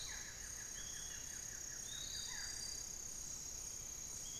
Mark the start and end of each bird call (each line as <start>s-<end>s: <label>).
0.0s-3.0s: Buff-throated Woodcreeper (Xiphorhynchus guttatus)
0.0s-4.4s: Barred Forest-Falcon (Micrastur ruficollis)
0.0s-4.4s: Piratic Flycatcher (Legatus leucophaius)